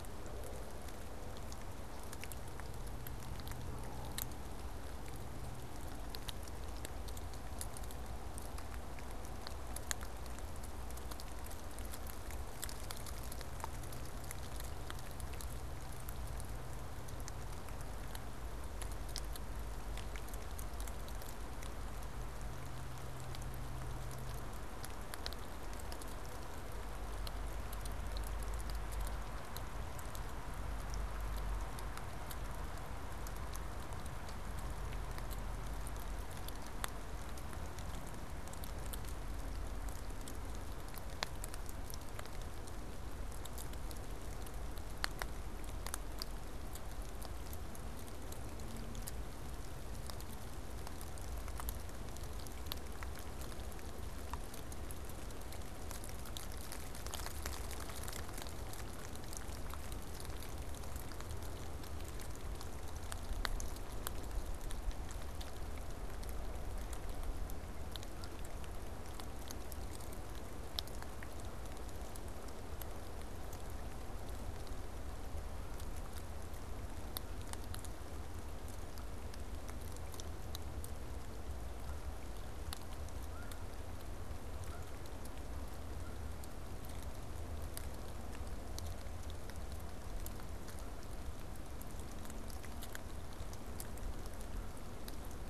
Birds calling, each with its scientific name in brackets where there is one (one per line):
Canada Goose (Branta canadensis)